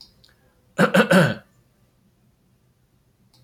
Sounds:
Throat clearing